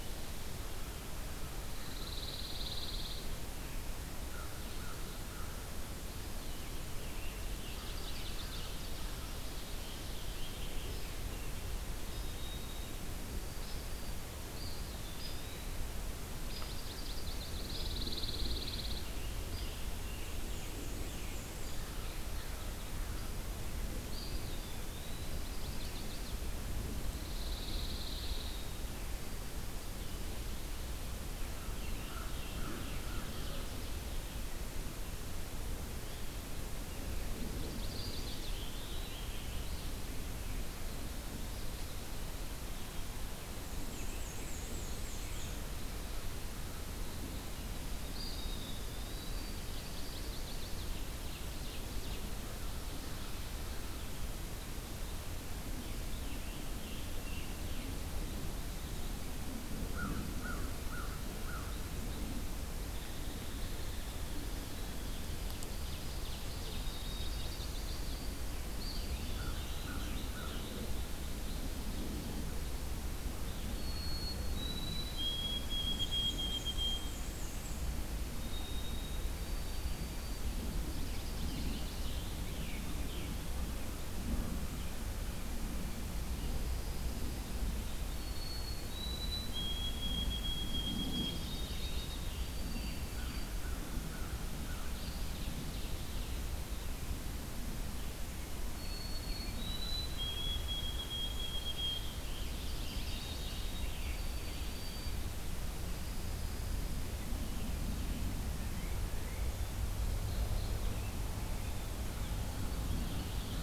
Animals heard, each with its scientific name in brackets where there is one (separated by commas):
Scarlet Tanager (Piranga olivacea), Hairy Woodpecker (Dryobates villosus), Pine Warbler (Setophaga pinus), Chestnut-sided Warbler (Setophaga pensylvanica), White-throated Sparrow (Zonotrichia albicollis), Ovenbird (Seiurus aurocapilla), Black-and-white Warbler (Mniotilta varia), American Crow (Corvus brachyrhynchos), Eastern Wood-Pewee (Contopus virens)